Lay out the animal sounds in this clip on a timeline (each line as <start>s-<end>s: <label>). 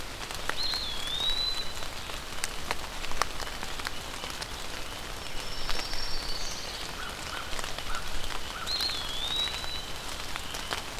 0.4s-1.9s: Eastern Wood-Pewee (Contopus virens)
5.2s-6.8s: Black-throated Green Warbler (Setophaga virens)
5.6s-6.9s: Pine Warbler (Setophaga pinus)
6.9s-8.8s: American Crow (Corvus brachyrhynchos)
8.6s-10.0s: Eastern Wood-Pewee (Contopus virens)